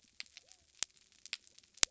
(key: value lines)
label: biophony
recorder: SoundTrap 300